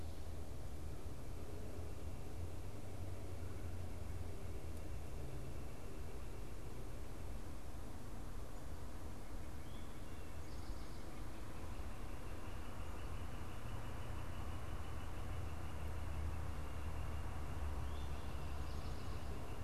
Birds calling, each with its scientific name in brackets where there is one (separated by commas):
Northern Flicker (Colaptes auratus), Eastern Towhee (Pipilo erythrophthalmus)